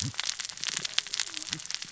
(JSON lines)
{"label": "biophony, cascading saw", "recorder": "SoundTrap 600 or HydroMoth"}